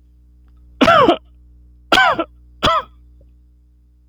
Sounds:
Cough